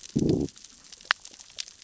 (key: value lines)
label: biophony, growl
recorder: SoundTrap 600 or HydroMoth